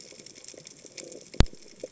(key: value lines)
label: biophony
recorder: HydroMoth